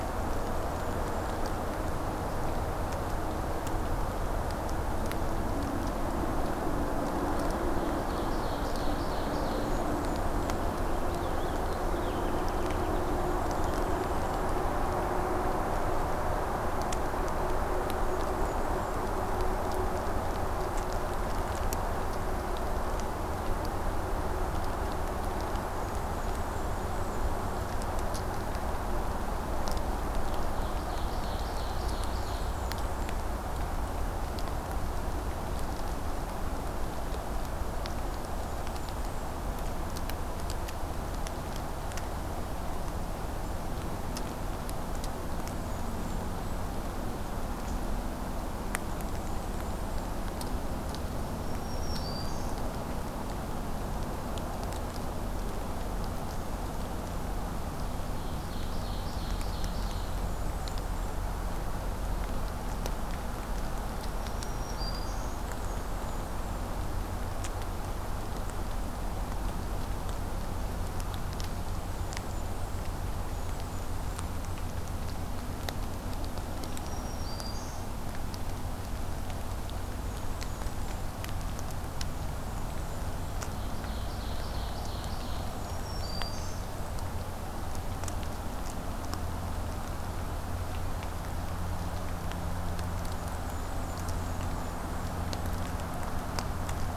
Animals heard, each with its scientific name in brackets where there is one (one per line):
Purple Finch (Haemorhous purpureus)
Black-throated Green Warbler (Setophaga virens)
Blackburnian Warbler (Setophaga fusca)
Ovenbird (Seiurus aurocapilla)